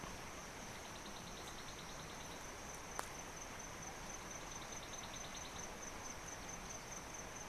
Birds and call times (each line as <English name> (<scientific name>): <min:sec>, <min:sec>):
African Bare-eyed Thrush (Turdus tephronotus): 0:01.6, 0:05.1